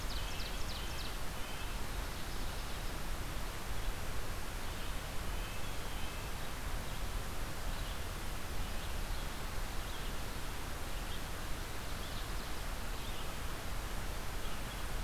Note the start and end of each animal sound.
[0.00, 1.25] Ovenbird (Seiurus aurocapilla)
[0.00, 2.10] Red-breasted Nuthatch (Sitta canadensis)
[2.09, 15.03] Red-eyed Vireo (Vireo olivaceus)
[4.08, 6.94] Red-breasted Nuthatch (Sitta canadensis)

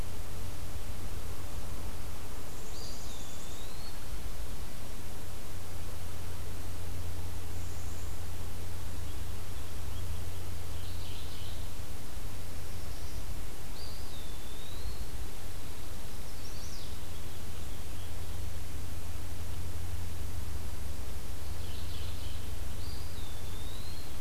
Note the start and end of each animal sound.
[2.31, 3.75] Black-capped Chickadee (Poecile atricapillus)
[2.72, 4.01] Eastern Wood-Pewee (Contopus virens)
[7.32, 8.33] Black-capped Chickadee (Poecile atricapillus)
[10.60, 11.75] Chestnut-sided Warbler (Setophaga pensylvanica)
[13.56, 15.31] Eastern Wood-Pewee (Contopus virens)
[15.06, 16.18] Pine Warbler (Setophaga pinus)
[16.04, 17.00] Chestnut-sided Warbler (Setophaga pensylvanica)
[16.49, 18.36] Scarlet Tanager (Piranga olivacea)
[21.40, 22.50] Mourning Warbler (Geothlypis philadelphia)
[22.66, 24.20] Eastern Wood-Pewee (Contopus virens)

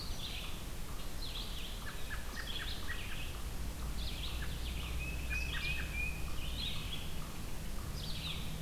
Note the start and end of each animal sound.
[0.00, 3.10] American Robin (Turdus migratorius)
[0.00, 8.61] Red-eyed Vireo (Vireo olivaceus)
[4.77, 6.36] Tufted Titmouse (Baeolophus bicolor)
[5.09, 8.61] American Robin (Turdus migratorius)

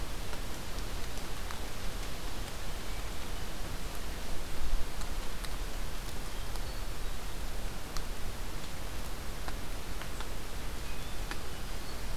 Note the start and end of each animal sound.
[10.69, 11.78] Hermit Thrush (Catharus guttatus)

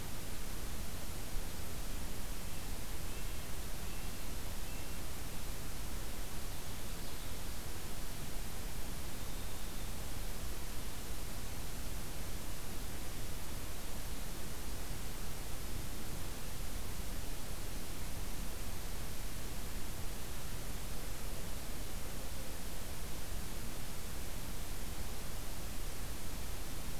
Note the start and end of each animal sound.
[2.94, 5.01] Red-breasted Nuthatch (Sitta canadensis)
[8.86, 11.32] Winter Wren (Troglodytes hiemalis)

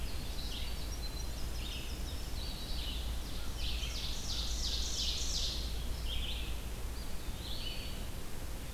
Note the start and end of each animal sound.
[0.00, 2.35] Winter Wren (Troglodytes hiemalis)
[0.00, 8.73] Red-eyed Vireo (Vireo olivaceus)
[3.26, 5.64] Ovenbird (Seiurus aurocapilla)
[6.75, 7.94] Eastern Wood-Pewee (Contopus virens)

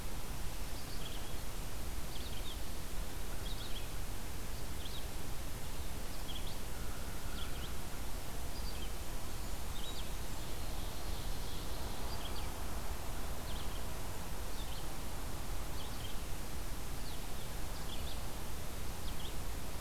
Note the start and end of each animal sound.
[0.00, 19.34] Red-eyed Vireo (Vireo olivaceus)
[6.68, 7.83] American Crow (Corvus brachyrhynchos)
[8.54, 10.35] Blackburnian Warbler (Setophaga fusca)
[10.25, 12.15] Ovenbird (Seiurus aurocapilla)

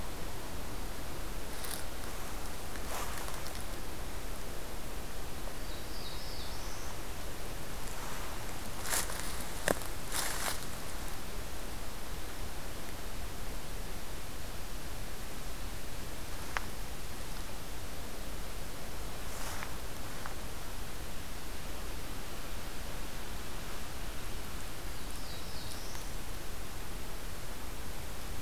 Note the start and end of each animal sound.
[5.19, 7.03] Black-throated Blue Warbler (Setophaga caerulescens)
[24.52, 26.43] Black-throated Blue Warbler (Setophaga caerulescens)

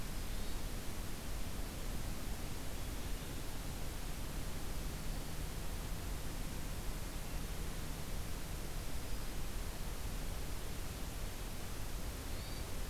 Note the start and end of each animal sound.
[0.10, 0.71] Hermit Thrush (Catharus guttatus)
[12.14, 12.72] Hermit Thrush (Catharus guttatus)

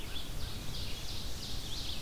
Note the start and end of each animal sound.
[0.00, 2.01] Red-eyed Vireo (Vireo olivaceus)
[0.00, 2.01] Ovenbird (Seiurus aurocapilla)

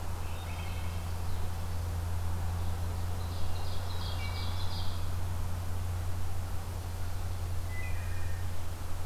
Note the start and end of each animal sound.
[0.00, 1.49] Common Yellowthroat (Geothlypis trichas)
[0.22, 1.07] Wood Thrush (Hylocichla mustelina)
[3.02, 5.29] Ovenbird (Seiurus aurocapilla)
[4.16, 4.92] Wood Thrush (Hylocichla mustelina)
[7.67, 8.50] Wood Thrush (Hylocichla mustelina)

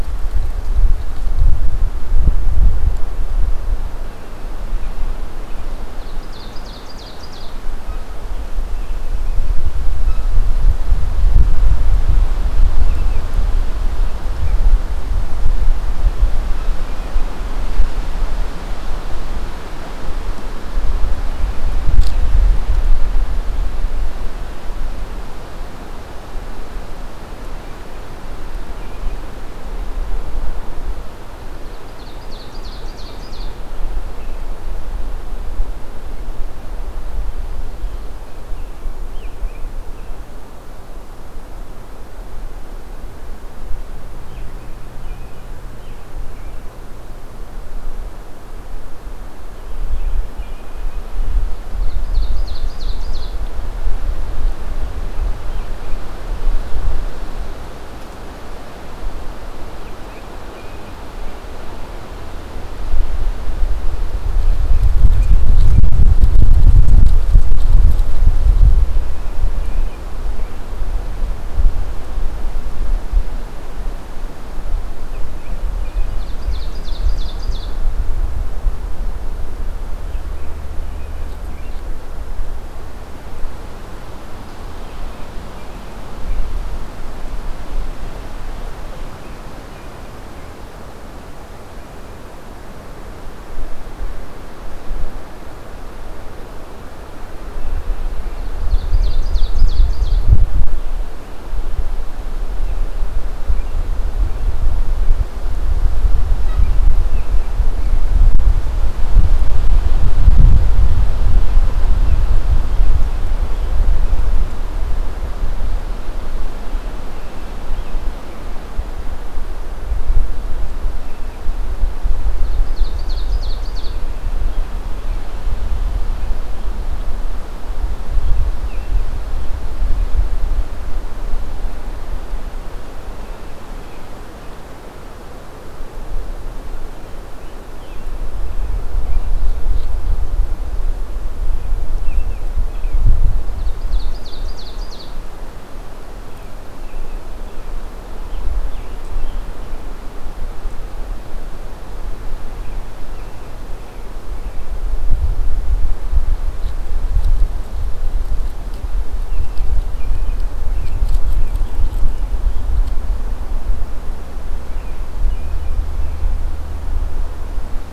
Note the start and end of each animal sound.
[4.09, 5.66] American Robin (Turdus migratorius)
[5.86, 7.60] Ovenbird (Seiurus aurocapilla)
[7.84, 10.34] American Robin (Turdus migratorius)
[31.49, 33.66] Ovenbird (Seiurus aurocapilla)
[37.91, 40.24] American Robin (Turdus migratorius)
[44.17, 46.68] American Robin (Turdus migratorius)
[49.58, 51.16] American Robin (Turdus migratorius)
[51.65, 53.40] Ovenbird (Seiurus aurocapilla)
[75.05, 76.90] American Robin (Turdus migratorius)
[75.85, 77.86] Ovenbird (Seiurus aurocapilla)
[79.89, 81.89] American Robin (Turdus migratorius)
[98.38, 100.26] Ovenbird (Seiurus aurocapilla)
[122.25, 124.02] Ovenbird (Seiurus aurocapilla)
[128.15, 129.06] American Robin (Turdus migratorius)
[137.24, 139.44] American Robin (Turdus migratorius)
[141.90, 143.12] American Robin (Turdus migratorius)
[143.32, 145.20] Ovenbird (Seiurus aurocapilla)
[146.15, 149.53] American Robin (Turdus migratorius)
[152.42, 154.60] American Robin (Turdus migratorius)
[159.20, 161.80] American Robin (Turdus migratorius)
[164.61, 166.48] American Robin (Turdus migratorius)

